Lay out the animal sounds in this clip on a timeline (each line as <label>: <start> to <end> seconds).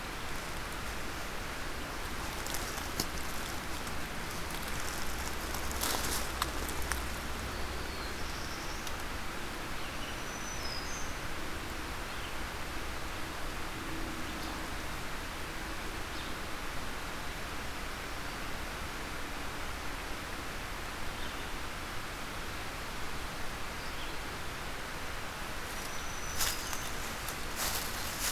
Black-throated Blue Warbler (Setophaga caerulescens): 7.3 to 9.0 seconds
Red-eyed Vireo (Vireo olivaceus): 9.6 to 28.3 seconds
Black-throated Green Warbler (Setophaga virens): 9.8 to 11.4 seconds
Black-throated Green Warbler (Setophaga virens): 25.6 to 27.1 seconds